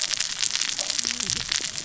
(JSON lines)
{"label": "biophony, cascading saw", "recorder": "SoundTrap 600 or HydroMoth"}